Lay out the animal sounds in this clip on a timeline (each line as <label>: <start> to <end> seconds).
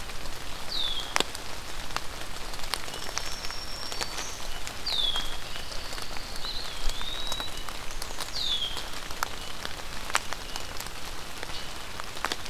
Red-winged Blackbird (Agelaius phoeniceus): 0.6 to 1.2 seconds
Black-throated Green Warbler (Setophaga virens): 2.7 to 4.4 seconds
Red-winged Blackbird (Agelaius phoeniceus): 4.7 to 5.4 seconds
Pine Warbler (Setophaga pinus): 5.3 to 6.7 seconds
Eastern Wood-Pewee (Contopus virens): 6.4 to 7.5 seconds
Red-winged Blackbird (Agelaius phoeniceus): 8.1 to 8.9 seconds